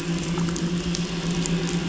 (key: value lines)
label: anthrophony, boat engine
recorder: SoundTrap 500